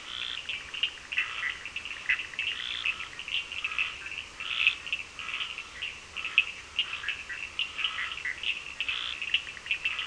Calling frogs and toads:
Scinax perereca, Cochran's lime tree frog (Sphaenorhynchus surdus), Bischoff's tree frog (Boana bischoffi)
Atlantic Forest, 8:30pm

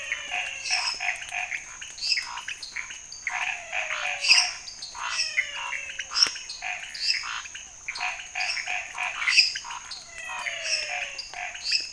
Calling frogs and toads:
menwig frog (Physalaemus albonotatus), Chaco tree frog (Boana raniceps), lesser tree frog (Dendropsophus minutus), pointedbelly frog (Leptodactylus podicipinus), Scinax fuscovarius, dwarf tree frog (Dendropsophus nanus), Physalaemus cuvieri
Cerrado, 11:15pm

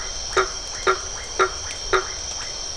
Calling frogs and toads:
blacksmith tree frog (Boana faber), Iporanga white-lipped frog (Leptodactylus notoaktites)
Atlantic Forest, 8:45pm

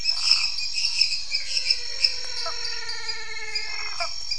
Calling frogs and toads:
lesser tree frog (Dendropsophus minutus), dwarf tree frog (Dendropsophus nanus), Elachistocleis matogrosso, menwig frog (Physalaemus albonotatus), Leptodactylus elenae, waxy monkey tree frog (Phyllomedusa sauvagii), Cuyaba dwarf frog (Physalaemus nattereri)
Cerrado, 8:00pm

